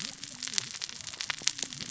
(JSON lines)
{"label": "biophony, cascading saw", "recorder": "SoundTrap 600 or HydroMoth"}